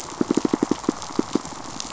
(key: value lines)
label: biophony, pulse
recorder: SoundTrap 500